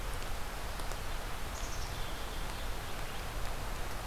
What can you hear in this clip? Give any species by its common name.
Black-capped Chickadee